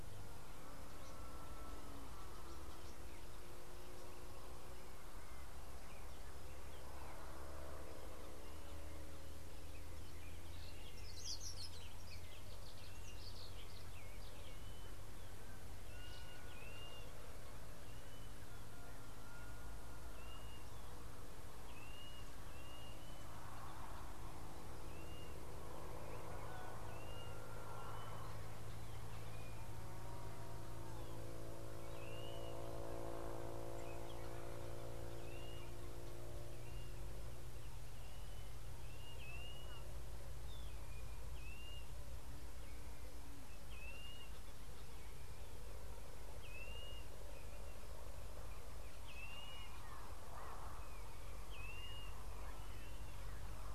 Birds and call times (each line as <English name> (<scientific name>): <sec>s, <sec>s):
Brimstone Canary (Crithagra sulphurata): 11.3s
Blue-naped Mousebird (Urocolius macrourus): 16.2s, 22.1s, 39.5s, 49.4s